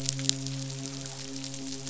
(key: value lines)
label: biophony, midshipman
recorder: SoundTrap 500